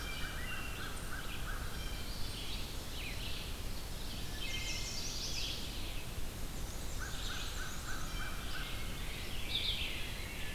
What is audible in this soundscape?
American Crow, Red-eyed Vireo, Blue Jay, Wood Thrush, Chestnut-sided Warbler, Black-and-white Warbler